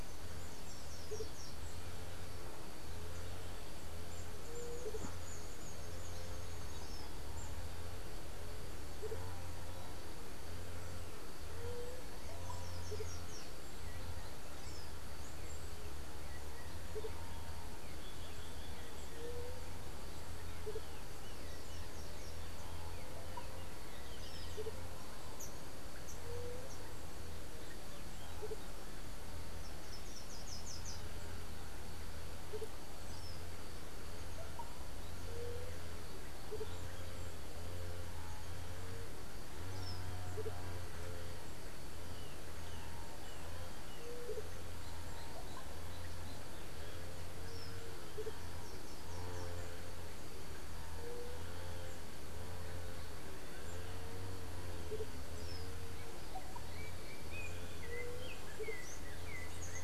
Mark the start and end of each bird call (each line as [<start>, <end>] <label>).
[0.00, 21.09] Andean Motmot (Momotus aequatorialis)
[0.39, 1.69] Slate-throated Redstart (Myioborus miniatus)
[4.39, 5.09] White-tipped Dove (Leptotila verreauxi)
[11.49, 11.99] White-tipped Dove (Leptotila verreauxi)
[12.19, 13.59] Slate-throated Redstart (Myioborus miniatus)
[19.09, 19.59] White-tipped Dove (Leptotila verreauxi)
[24.49, 59.84] Andean Motmot (Momotus aequatorialis)
[26.19, 26.69] White-tipped Dove (Leptotila verreauxi)
[29.49, 31.19] Slate-throated Redstart (Myioborus miniatus)
[35.19, 35.79] White-tipped Dove (Leptotila verreauxi)
[43.99, 44.49] White-tipped Dove (Leptotila verreauxi)
[50.99, 51.39] White-tipped Dove (Leptotila verreauxi)
[56.59, 59.84] Yellow-backed Oriole (Icterus chrysater)
[57.79, 58.39] White-tipped Dove (Leptotila verreauxi)
[58.69, 59.84] unidentified bird